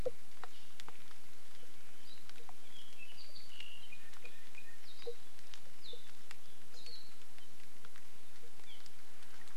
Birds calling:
Apapane (Himatione sanguinea), Hawaii Akepa (Loxops coccineus)

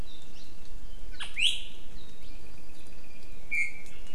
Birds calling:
Apapane (Himatione sanguinea), Iiwi (Drepanis coccinea)

